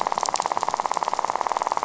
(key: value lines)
label: biophony, rattle
recorder: SoundTrap 500